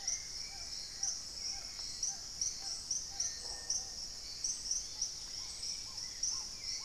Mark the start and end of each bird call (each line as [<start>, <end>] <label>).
[0.00, 6.85] Black-tailed Trogon (Trogon melanurus)
[0.00, 6.85] Hauxwell's Thrush (Turdus hauxwelli)
[0.00, 6.85] Little Tinamou (Crypturellus soui)
[3.04, 4.24] Gray-fronted Dove (Leptotila rufaxilla)
[3.24, 4.04] Red-necked Woodpecker (Campephilus rubricollis)
[4.74, 6.04] Dusky-capped Greenlet (Pachysylvia hypoxantha)